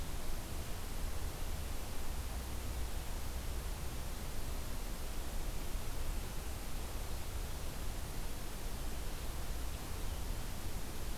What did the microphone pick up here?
forest ambience